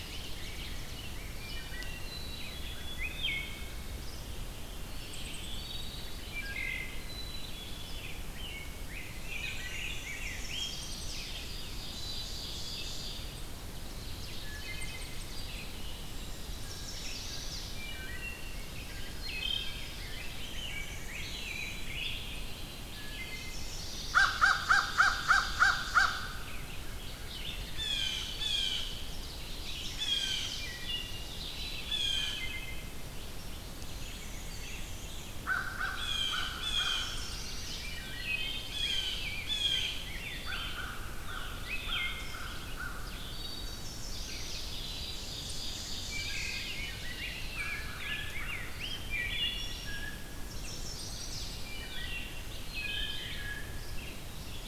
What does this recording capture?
Rose-breasted Grosbeak, Ovenbird, Red-eyed Vireo, Wood Thrush, Black-capped Chickadee, Black-and-white Warbler, Chestnut-sided Warbler, unidentified call, American Crow, Blue Jay, Pine Warbler